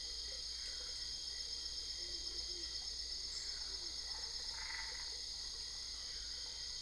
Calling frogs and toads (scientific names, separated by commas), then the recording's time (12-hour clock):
Boana albopunctata
12:15am